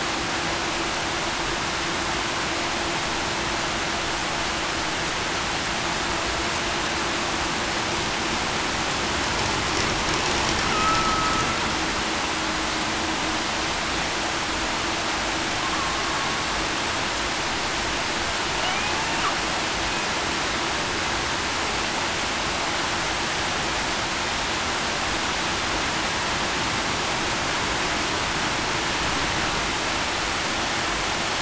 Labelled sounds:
10.7	11.3	killer whale, Bigg's (transient), 1.2 to 1.3 kHz

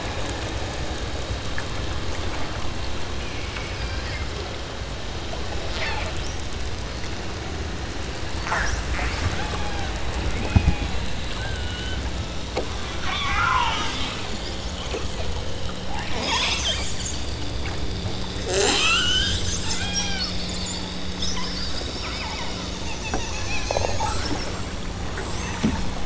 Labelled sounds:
5.7	6.5	killer whale, southern Alaska resident, 1.3 to 6.8 kHz
8.4	8.9	killer whale, southern Alaska resident, 0.30 to 6.9 kHz
9.3	9.9	killer whale, southern Alaska resident, 0.34 to 2.8 kHz
10.4	11.0	killer whale, southern Alaska resident, 0.56 to 3.0 kHz
11.4	12.1	killer whale, southern Alaska resident, 1.1 to 3.5 kHz
13.0	13.9	killer whale, southern Alaska resident, 0.47 to 4.1 kHz
16.1	16.8	killer whale, southern Alaska resident, 0.26 to 7.5 kHz
18.5	20.4	killer whale, southern Alaska resident, 0.39 to 8.0 kHz
22.1	22.6	killer whale, southern Alaska resident, 0.60 to 2.8 kHz

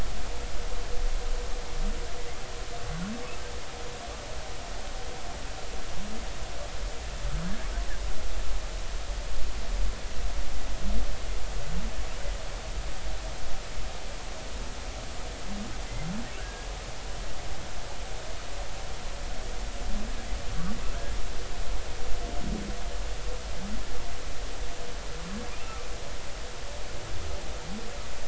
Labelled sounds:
16.4	16.7	humpback whale, 1.3 to 1.7 kHz

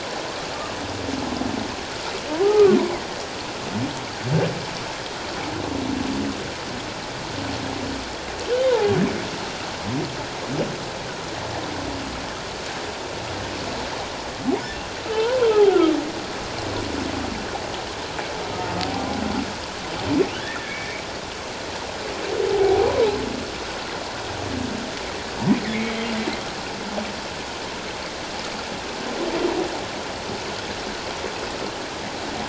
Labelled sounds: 2.4	2.8	humpback whale, 1.1 to 1.3 kHz
8.7	8.9	humpback whale, 0.78 to 1.1 kHz
15.0	16.0	humpback whale, 0.78 to 1.6 kHz
20.3	21.0	humpback whale, 1.5 to 2.3 kHz
22.5	23.0	humpback whale, 0.78 to 1.0 kHz
25.8	26.1	humpback whale, 3.1 to 3.3 kHz

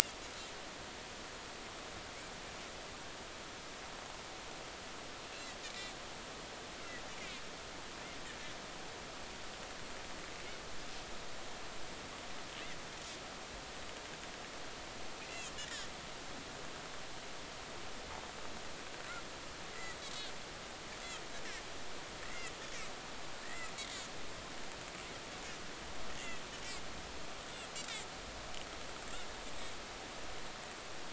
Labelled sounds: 19.7	20.0	Pacific white-sided dolphin, 1.9 to 2.1 kHz
22.2	22.5	Pacific white-sided dolphin, 1.9 to 2.9 kHz
23.4	23.7	Pacific white-sided dolphin, 1.7 to 2.1 kHz

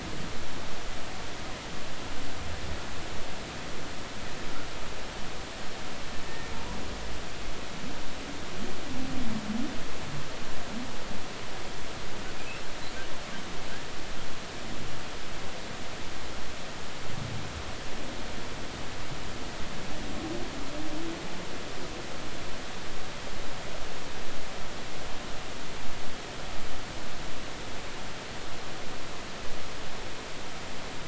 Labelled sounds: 6.3	6.5	humpback whale, 1.8 to 1.9 kHz

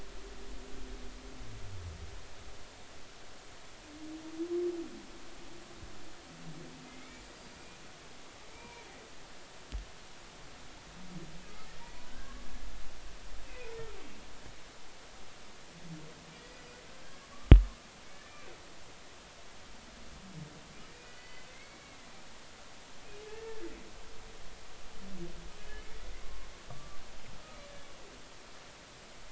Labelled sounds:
6.9	7.7	humpback whale, 2.0 to 4.9 kHz
8.5	8.9	humpback whale, 0.86 to 2.4 kHz
11.7	12.5	humpback whale, 1.0 to 2.0 kHz
13.5	13.7	humpback whale, 2.3 to 2.6 kHz
16.3	16.8	humpback whale, 1.8 to 5.0 kHz
21.1	22.1	humpback whale, 2.0 to 4.6 kHz
23.3	23.7	humpback whale, 1.6 to 1.8 kHz
25.6	25.9	humpback whale, 2.9 to 3.0 kHz
26.2	27.0	humpback whale, 0.99 to 1.2 kHz

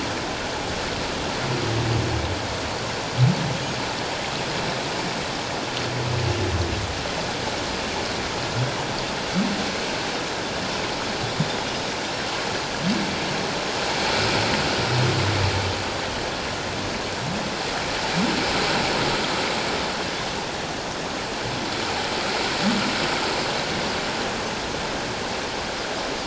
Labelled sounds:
3.5	3.8	Pacific white-sided dolphin, 6.5 to 6.8 kHz

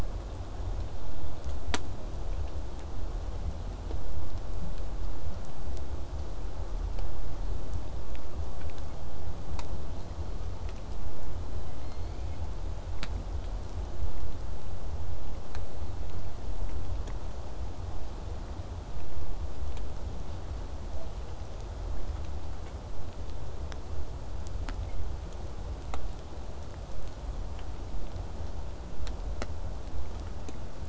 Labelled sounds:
11.3	12.6	killer whale, southern resident, J pod, call S01, 1.8 to 5.4 kHz
25.9	30.8	vessel noise, 0 to 8.0 kHz

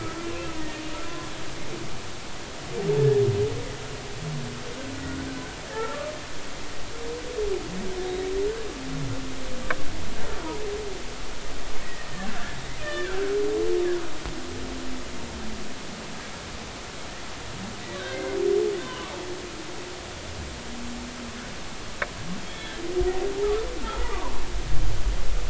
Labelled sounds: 0.3	0.5	humpback whale, 2.4 to 2.8 kHz
3.0	3.2	humpback whale, 1.6 to 1.9 kHz
5.7	6.0	humpback whale, 0.83 to 0.96 kHz
12.8	13.4	humpback whale, 1.3 to 3.1 kHz
17.9	19.1	humpback whale, 0.96 to 2.2 kHz
22.5	22.8	humpback whale, 1.5 to 3.4 kHz
23.8	24.1	humpback whale, 1.2 to 1.5 kHz

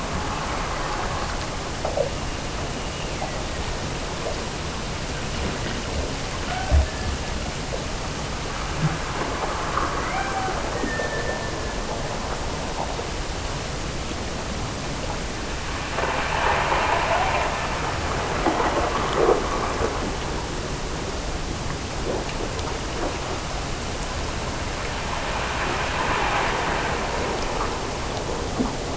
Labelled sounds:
0.0	1.4	killer whale, Bigg's (transient), Gulf of Alaska transient, 1.6 to 3.1 kHz
2.7	4.0	killer whale, Bigg's (transient), Gulf of Alaska transient, 1.6 to 3.0 kHz
6.4	7.2	killer whale, Bigg's (transient), Gulf of Alaska transient, 0.48 to 1.7 kHz
10.0	11.8	killer whale, Bigg's (transient), Gulf of Alaska transient, 0.63 to 2.5 kHz

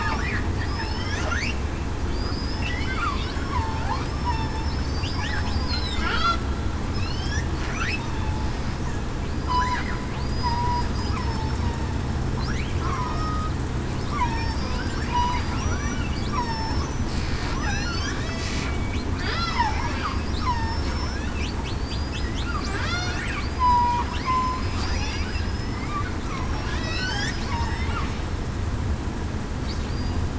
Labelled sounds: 0.7	1.2	killer whale, southern resident, 4.9 to 5.6 kHz
2.1	3.8	killer whale, southern resident, 0.87 to 5.3 kHz
4.1	5.0	killer whale, southern resident, 1.7 to 5.4 kHz
5.5	6.0	killer whale, southern resident, 4.6 to 5.3 kHz
6.9	7.4	killer whale, southern resident, 2.4 to 5.6 kHz
9.4	9.8	killer whale, southern resident, 0.94 to 1.1 kHz
10.2	10.6	killer whale, southern resident, 4.7 to 5.0 kHz
11.2	11.7	killer whale, southern resident, 5.2 to 5.4 kHz
12.8	13.5	killer whale, southern resident, 0.98 to 8.0 kHz
14.1	14.6	killer whale, southern resident, 0.87 to 1.2 kHz
15.6	16.0	killer whale, southern resident, 5.7 to 5.9 kHz
16.3	16.9	killer whale, southern resident, 0.84 to 5.6 kHz
17.5	18.1	killer whale, southern resident, 3.9 to 6.5 kHz
19.3	21.2	killer whale, southern resident, 4.6 to 5.5 kHz
21.8	22.3	killer whale, southern resident, 4.5 to 5.2 kHz
22.7	23.1	killer whale, southern resident, 7.9 to 8.0 kHz
23.4	23.9	killer whale, southern resident, 4.6 to 5.0 kHz
24.2	25.2	killer whale, southern resident, 0.98 to 5.9 kHz
25.6	25.9	killer whale, southern resident, 1.9 to 2.3 kHz
26.2	27.1	killer whale, southern resident, 1.6 to 6.0 kHz
27.5	27.8	killer whale, southern resident, 5.1 to 5.4 kHz

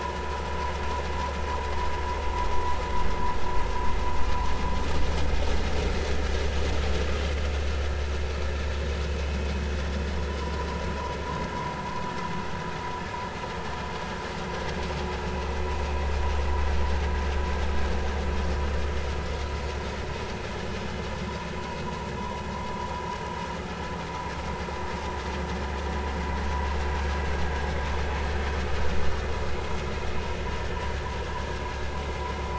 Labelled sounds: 10.4	10.7	vessel noise, 0.93 to 1.1 kHz
22.2	22.4	vessel noise, 0.90 to 1.1 kHz

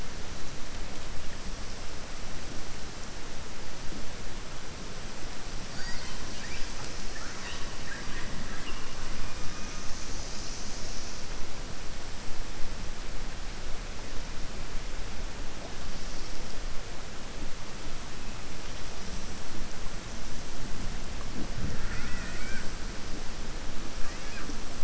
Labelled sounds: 7.7	8.3	killer whale, southern resident, 1.1 to 3.2 kHz

